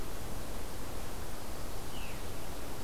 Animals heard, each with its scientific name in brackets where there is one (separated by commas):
Veery (Catharus fuscescens)